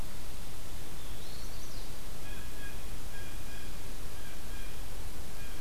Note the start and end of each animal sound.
[0.94, 1.51] Eastern Wood-Pewee (Contopus virens)
[1.11, 1.93] Chestnut-sided Warbler (Setophaga pensylvanica)
[2.10, 5.60] Blue Jay (Cyanocitta cristata)

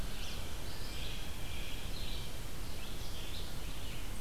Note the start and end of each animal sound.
[0.00, 4.21] Red-eyed Vireo (Vireo olivaceus)
[0.65, 2.30] Blue Jay (Cyanocitta cristata)

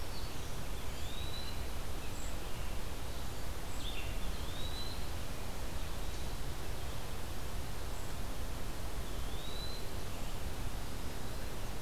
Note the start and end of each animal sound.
[0.00, 0.67] Black-throated Green Warbler (Setophaga virens)
[0.00, 4.24] Red-eyed Vireo (Vireo olivaceus)
[0.91, 1.58] Eastern Wood-Pewee (Contopus virens)
[4.19, 5.13] Eastern Wood-Pewee (Contopus virens)
[8.84, 9.90] Eastern Wood-Pewee (Contopus virens)

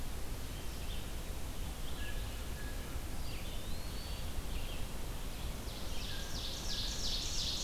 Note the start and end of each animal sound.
[0.00, 7.63] Red-eyed Vireo (Vireo olivaceus)
[1.90, 2.98] Blue Jay (Cyanocitta cristata)
[3.03, 4.28] Eastern Wood-Pewee (Contopus virens)
[5.61, 7.63] Ovenbird (Seiurus aurocapilla)

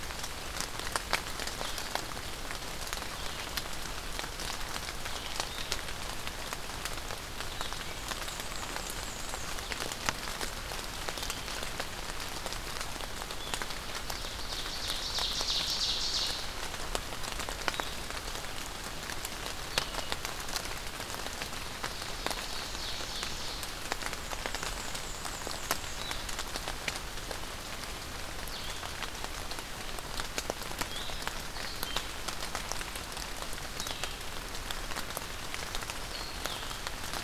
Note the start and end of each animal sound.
[0.00, 37.23] Blue-headed Vireo (Vireo solitarius)
[7.82, 9.67] Black-and-white Warbler (Mniotilta varia)
[14.03, 16.50] Ovenbird (Seiurus aurocapilla)
[21.61, 23.67] Ovenbird (Seiurus aurocapilla)
[24.43, 26.07] Black-and-white Warbler (Mniotilta varia)

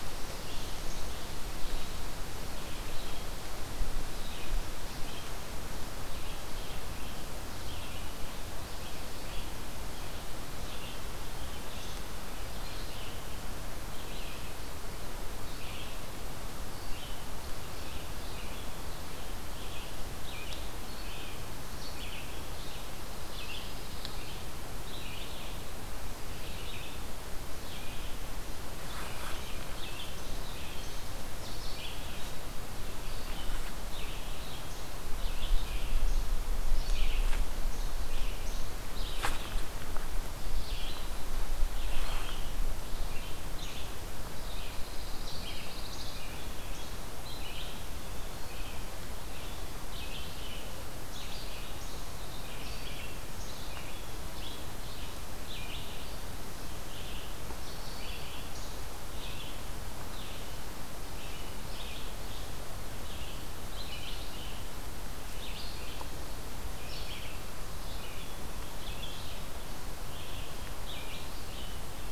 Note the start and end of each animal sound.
[0.00, 72.12] Red-eyed Vireo (Vireo olivaceus)
[23.07, 24.58] Pine Warbler (Setophaga pinus)
[44.14, 46.54] Pine Warbler (Setophaga pinus)

